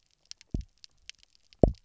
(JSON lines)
{"label": "biophony, double pulse", "recorder": "SoundTrap 300"}